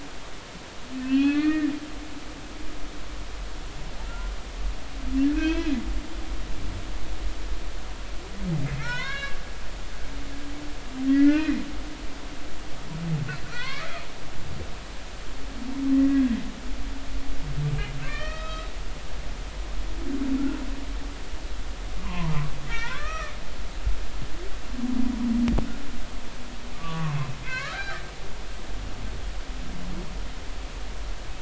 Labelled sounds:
1.0	1.7	humpback whale, 1.1 to 3.6 kHz
4.1	4.3	humpback whale, 1.3 to 1.4 kHz
5.3	5.8	humpback whale, 1.5 to 4.1 kHz
8.8	9.4	humpback whale, 0.86 to 4.5 kHz
11.0	11.6	humpback whale, 1.3 to 2.6 kHz
13.5	13.9	humpback whale, 0.96 to 2.3 kHz
15.9	16.3	humpback whale, 1.6 to 2.0 kHz
18.1	18.7	humpback whale, 1.1 to 5.2 kHz
22.0	23.3	humpback whale, 0.86 to 5.7 kHz
26.7	28.0	humpback whale, 0.99 to 4.1 kHz

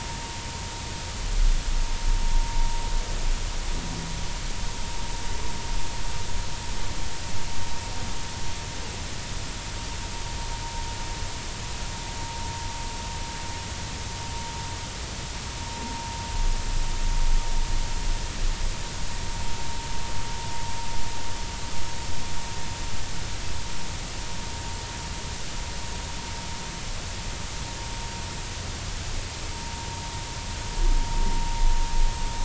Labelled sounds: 29.6	29.9	vessel noise, 0.90 to 0.96 kHz

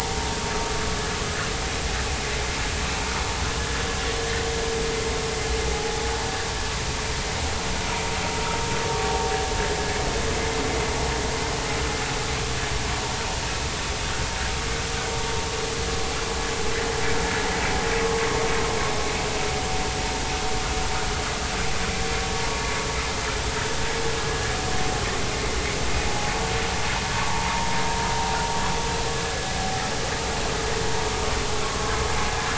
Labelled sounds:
5.7	6.0	vessel noise, 0.80 to 0.90 kHz
27.3	27.8	vessel noise, 0.83 to 1.3 kHz
31.6	32.0	vessel noise, 0.99 to 1.2 kHz

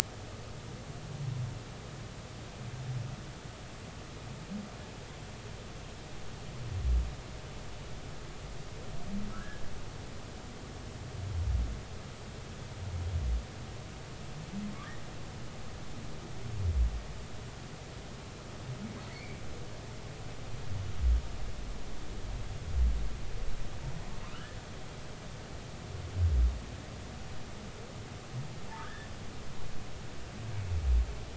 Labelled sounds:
9.3	9.6	humpback whale, 1.2 to 1.8 kHz
19.1	19.4	humpback whale, 1.8 to 2.4 kHz
24.3	24.6	humpback whale, 1.3 to 1.9 kHz
28.8	29.1	humpback whale, 1.5 to 1.9 kHz

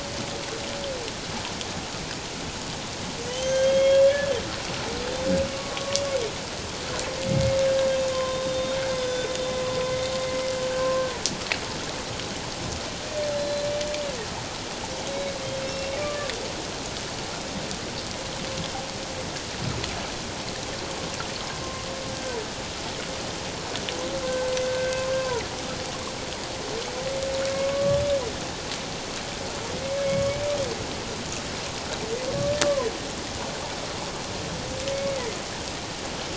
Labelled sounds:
3.3	4.3	humpback whale, 1.6 to 6.6 kHz
5.5	6.0	humpback whale, 1.0 to 1.2 kHz
7.3	7.6	humpback whale, 2.0 to 2.2 kHz
7.8	9.3	humpback whale, 0.97 to 3.8 kHz
13.3	13.6	humpback whale, 4.0 to 4.1 kHz
15.1	15.3	humpback whale, 2.2 to 4.0 kHz
15.6	16.3	humpback whale, 1.1 to 2.8 kHz
24.2	25.4	humpback whale, 0.91 to 1.6 kHz
27.5	28.0	humpback whale, 0.91 to 1.2 kHz
30.1	30.4	humpback whale, 1.1 to 1.2 kHz
32.6	32.9	humpback whale, 0.94 to 1.2 kHz
34.9	35.2	humpback whale, 2.2 to 2.3 kHz

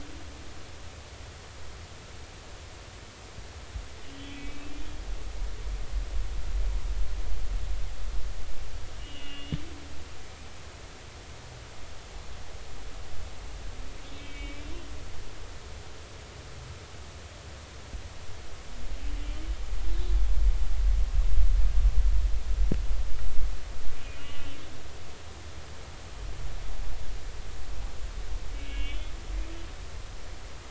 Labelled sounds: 4.0	4.7	humpback whale, 2.2 to 3.5 kHz
9.0	9.6	humpback whale, 2.7 to 3.6 kHz
14.2	14.7	humpback whale, 2.2 to 2.7 kHz
24.0	24.6	humpback whale, 2.4 to 3.2 kHz
28.5	29.1	humpback whale, 2.2 to 3.6 kHz

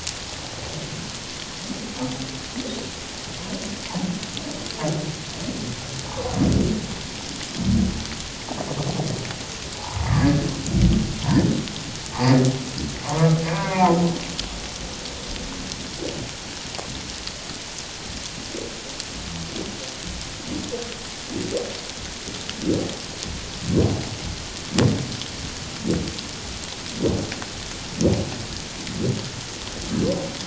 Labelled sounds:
6.1	6.3	humpback whale, 0.81 to 1.2 kHz
9.8	10.5	humpback whale, 0.78 to 1.8 kHz
13.0	14.0	humpback whale, 0.78 to 1.2 kHz

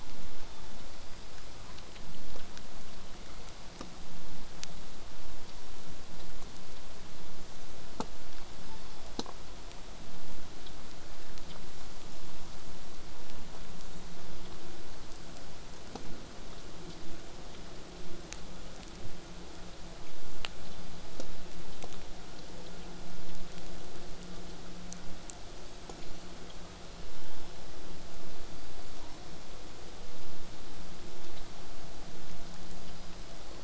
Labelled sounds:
1.1	1.5	killer whale, southern resident, whistle, 4.7 to 5.3 kHz
3.0	8.0	vessel noise, 0 to 8.0 kHz
8.6	9.1	killer whale, southern resident, J pod, call S06, 0.49 to 1.1 kHz
25.6	26.4	killer whale, southern resident, 3.6 to 8.0 kHz
28.5	28.9	killer whale, southern resident, 4.5 to 4.8 kHz

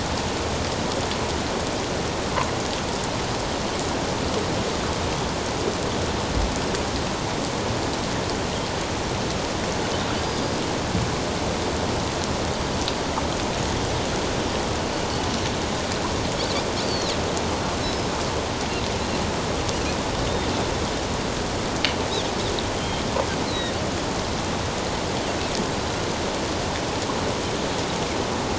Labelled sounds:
10.1	10.6	Pacific white-sided dolphin, 4.4 to 4.9 kHz
16.8	17.1	Pacific white-sided dolphin, 3.7 to 4.7 kHz
17.8	18.1	Pacific white-sided dolphin, 5.1 to 5.3 kHz
22.7	23.7	Pacific white-sided dolphin, 3.0 to 4.2 kHz

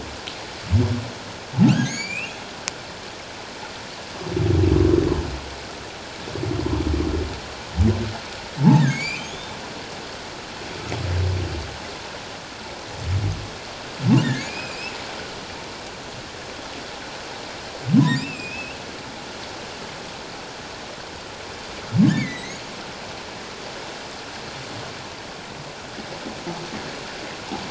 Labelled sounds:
1.7	2.4	humpback whale, 1.4 to 7.2 kHz
8.6	9.5	humpback whale, 0.81 to 5.0 kHz
14.2	14.9	humpback whale, 2.0 to 7.3 kHz
18.0	18.8	humpback whale, 2.3 to 3.8 kHz
22.0	22.6	humpback whale, 1.6 to 4.1 kHz

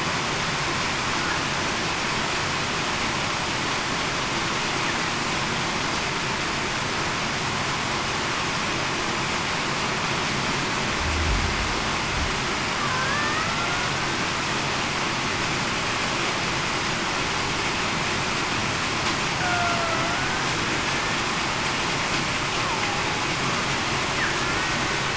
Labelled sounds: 12.9	13.5	killer whale, Bigg's (transient), 1.5 to 2.0 kHz
19.4	19.9	killer whale, Bigg's (transient), 0.63 to 1.6 kHz

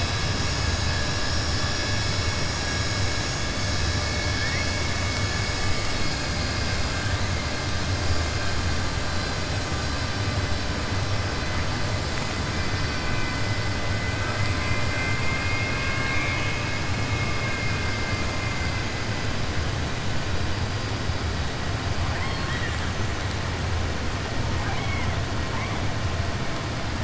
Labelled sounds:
22.1	22.9	killer whale, southern resident, 1.1 to 4.4 kHz
24.5	25.1	killer whale, southern resident, 0.76 to 3.3 kHz

